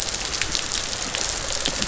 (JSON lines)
{"label": "biophony, rattle response", "recorder": "SoundTrap 500"}